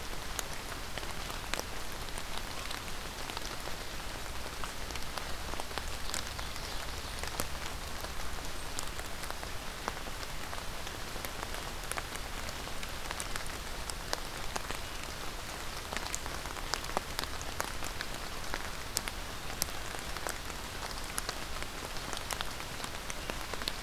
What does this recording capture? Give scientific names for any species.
Seiurus aurocapilla